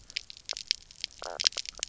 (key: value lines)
label: biophony, knock croak
recorder: SoundTrap 300